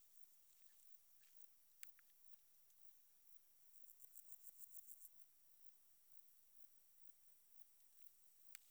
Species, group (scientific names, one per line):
Pseudochorthippus parallelus
Orthoptera